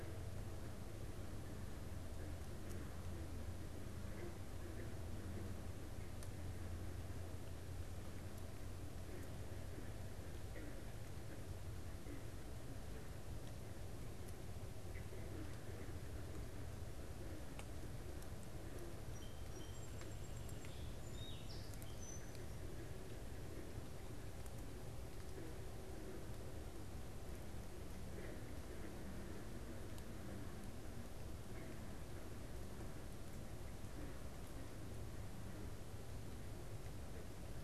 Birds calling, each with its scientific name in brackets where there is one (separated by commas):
Song Sparrow (Melospiza melodia)